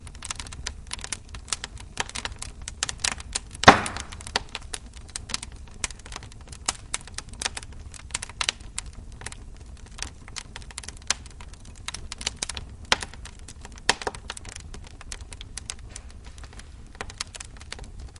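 0.0s Wet wood pieces are burning in a fireplace. 18.2s
3.6s A piece of wet wood crackles in a fireplace. 4.4s
12.8s A piece of wet wood crackles in a fireplace. 14.1s

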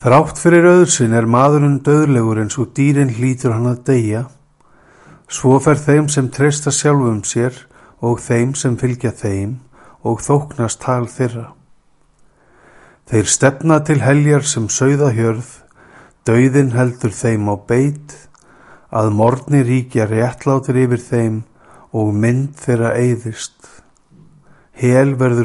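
0.1s A man is speaking clearly. 25.4s

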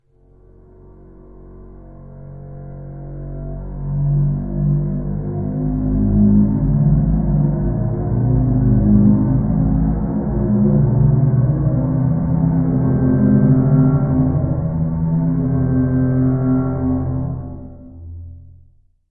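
0.0s A violin playing a gradually descending pitch. 4.5s
4.5s A violin plays a loud, pitched-down sound. 17.0s
17.0s Violin sound gradually decreasing in pitch. 19.1s

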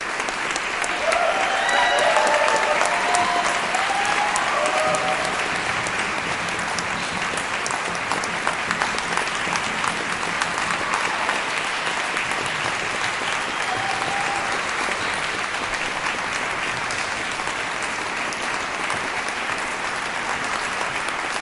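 0.1s Many people are clapping together. 21.4s
1.7s Multiple people are shouting a couple of times. 6.1s
13.7s Two people are shouting quietly. 14.6s

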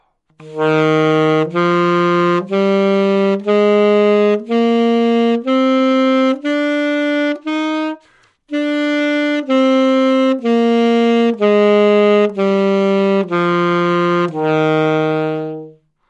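0.3s An alto saxophone plays a melodic scale. 15.8s

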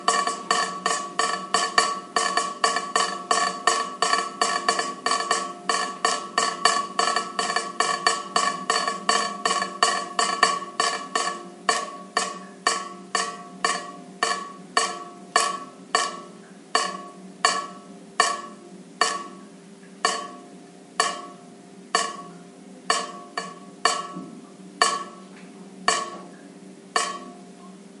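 0.0s A metallic thumping sound repeats rhythmically. 27.4s

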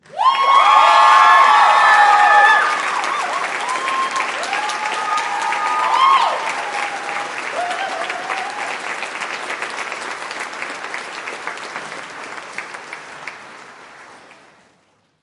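0.0s Audience clapping and cheering loudly. 15.2s

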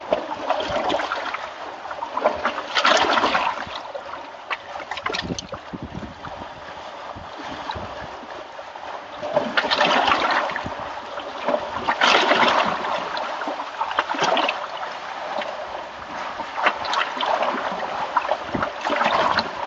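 0.0s Gentle ocean waves lap against pillars beneath a pier, producing a low, muffled echo in the enclosed space. 4.4s
9.1s Gentle ocean waves lap against pillars beneath a pier, producing a low, muffled echo in the enclosed space. 15.0s
16.2s Gentle ocean waves lap against pillars beneath a pier, producing a low, muffled echo in the enclosed space. 19.7s

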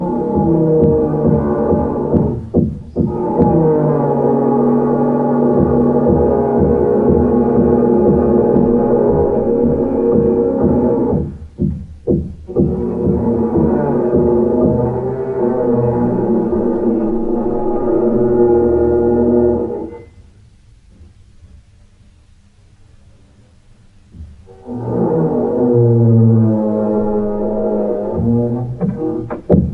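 0.1s Drilling sounds muffled from the floor above. 11.3s
0.3s Muffled rhythmic hammer strikes. 3.7s
5.9s A muffled rhythmic hammering. 15.2s
12.9s Drilling sounds muffled from the floor above. 19.8s
24.7s Drilling sounds muffled from the floor above. 29.7s
28.6s Muffled rhythmic hammer strikes. 29.7s

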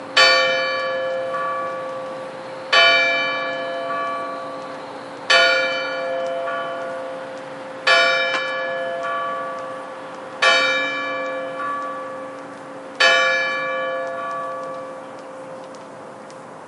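0.0s A small continuous environmental noise inside a church. 16.7s
0.2s A loud bell strikes quickly in a church. 1.8s
1.1s A loud bell echoing in a church. 2.5s
2.7s A loud bell strikes quickly in a church. 4.3s
3.7s A loud bell echoing in a church. 5.1s
5.3s A loud bell strikes quickly in a church. 6.9s
6.1s A loud bell echoing in a church. 7.5s
7.9s A loud bell strikes quickly in a church. 9.4s
8.7s A loud bell echoing in a church. 10.1s
10.4s A loud bell strikes quickly in a church. 12.0s
11.1s A loud bell echoing in a church. 12.6s
13.0s A loud bell strikes quickly in a church. 14.6s
13.9s A loud bell echoing in a church. 15.4s

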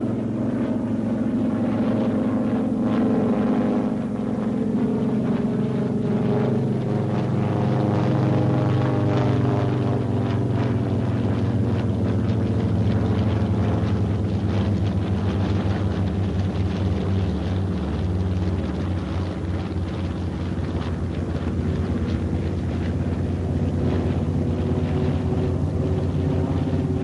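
0.0s An old propeller plane passes by in the distance. 27.0s

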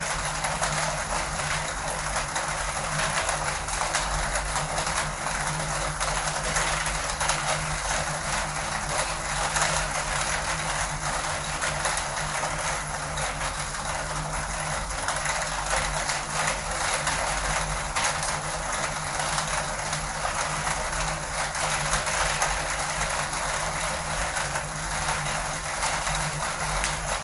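0.0s Heavy rain hitting a metal sheet. 27.2s

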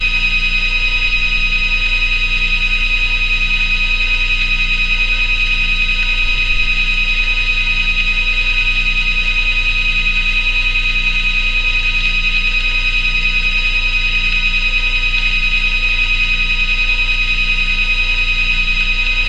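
0.0s An industrial vacuum pump operates continuously indoors. 19.3s

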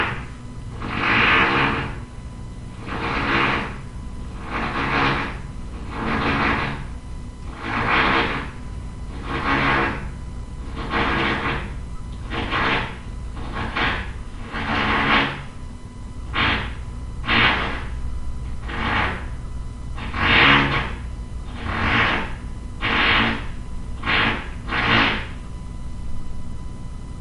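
0.0s A rhythmic, loud, echoing drilling sound with brief pauses. 27.2s

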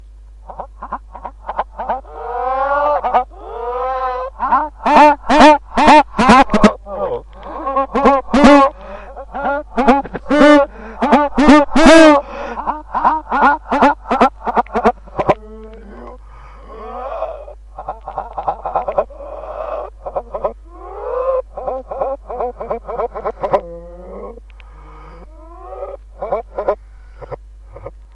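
0.0s A mix of gasps and rhythmic inhales. 28.1s

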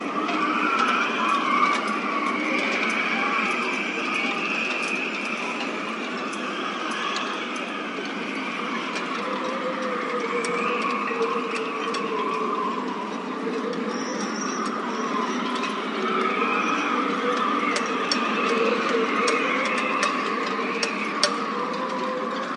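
0.1s Wind gusts through the masts, creating constant metallic clinking and clattering. 22.6s

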